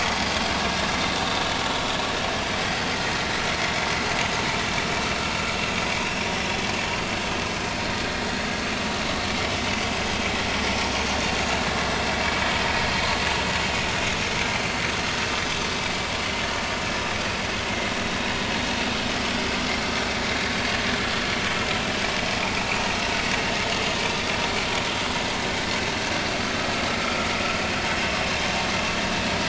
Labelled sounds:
22.1	22.4	vessel noise, 5.1 to 5.2 kHz

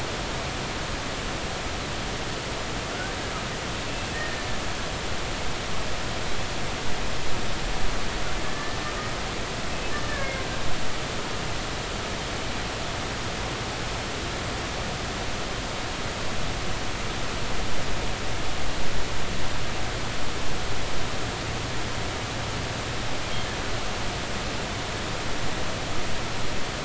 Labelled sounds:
4.1	4.4	killer whale, Bigg's (transient), 1.7 to 1.9 kHz
8.4	8.8	killer whale, Bigg's (transient), 1.7 to 1.8 kHz
10.1	10.5	killer whale, Bigg's (transient), 1.6 to 2.2 kHz

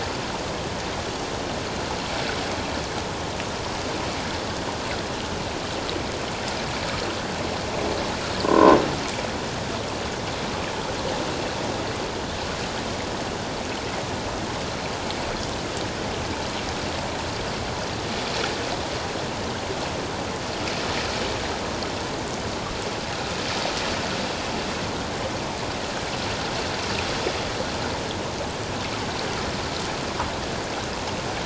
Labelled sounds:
8.4	8.8	croaking sound likely from a nearby submerged object, 0.94 to 1.6 kHz

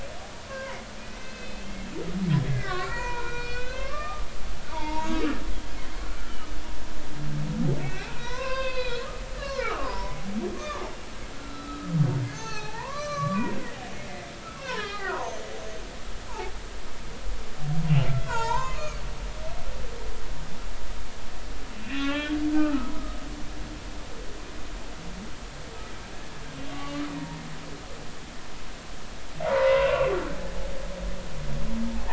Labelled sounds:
0.5	0.8	humpback whale, 0.90 to 1.1 kHz
1.2	1.7	humpback whale, 2.5 to 6.3 kHz
2.5	4.2	humpback whale, 0.90 to 4.4 kHz
4.7	5.3	humpback whale, 0.83 to 4.7 kHz
7.8	10.2	humpback whale, 0.83 to 4.9 kHz
10.6	10.8	humpback whale, 0.96 to 1.3 kHz
11.3	11.9	humpback whale, 1.2 to 1.5 kHz
12.2	13.4	humpback whale, 0.80 to 6.6 kHz
13.9	15.4	humpback whale, 0.80 to 3.3 kHz
16.3	16.5	humpback whale, 0.80 to 1.1 kHz
18.2	19.0	humpback whale, 0.83 to 7.1 kHz
21.7	22.9	humpback whale, 0.80 to 3.4 kHz
26.7	27.1	humpback whale, 1.1 to 1.2 kHz
29.4	30.1	humpback whale, 0.80 to 2.8 kHz

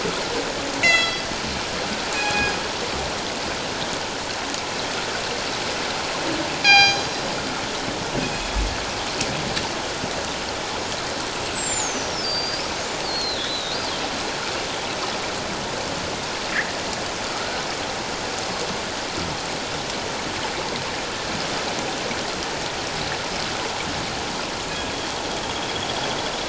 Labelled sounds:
0.8	1.3	killer whale, northern resident, G clan, call N24ii, 1.9 to 7.5 kHz
2.1	2.6	killer whale, northern resident, G clan, call N24ii, 1.6 to 2.6 kHz
6.6	7.0	killer whale, northern resident, G clan, call N24ii, 0.78 to 6.6 kHz
8.2	8.6	killer whale, northern resident, G clan, call N24ii, 2.4 to 6.9 kHz
11.5	12.6	killer whale, northern resident, G clan, 4.6 to 8.0 kHz
13.1	13.8	killer whale, northern resident, G clan, 3.3 to 4.5 kHz
17.3	17.6	killer whale, northern resident, G clan, 1.2 to 1.6 kHz

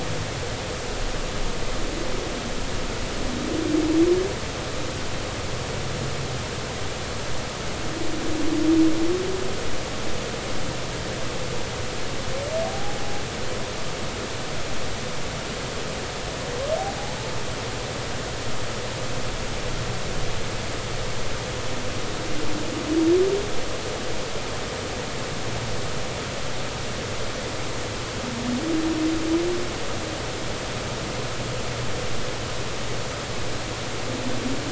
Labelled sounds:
12.6	13.0	humpback whale, 0.80 to 0.86 kHz

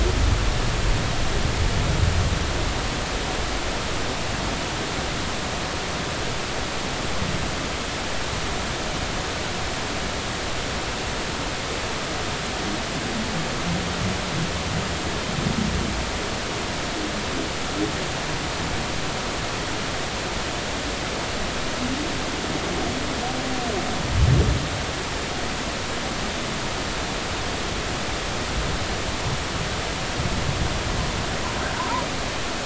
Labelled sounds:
31.8	32.0	humpback whale, 0.86 to 1.1 kHz

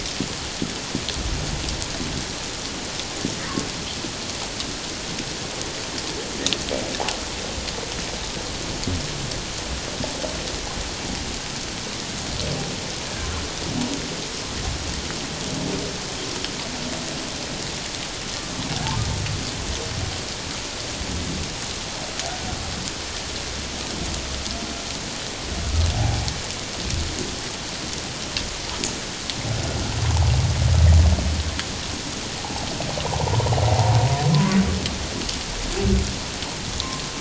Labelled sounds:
34.3	34.6	humpback whale, 0.97 to 1.2 kHz

